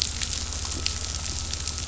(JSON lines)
{"label": "anthrophony, boat engine", "recorder": "SoundTrap 500"}